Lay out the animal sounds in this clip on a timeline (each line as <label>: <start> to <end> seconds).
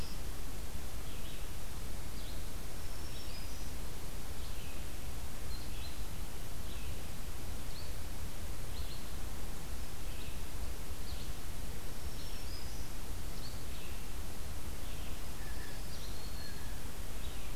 Red-eyed Vireo (Vireo olivaceus): 0.0 to 17.6 seconds
Black-throated Green Warbler (Setophaga virens): 2.7 to 3.9 seconds
Black-throated Green Warbler (Setophaga virens): 11.8 to 13.1 seconds
Blue Jay (Cyanocitta cristata): 15.3 to 16.9 seconds
Black-throated Green Warbler (Setophaga virens): 15.4 to 16.7 seconds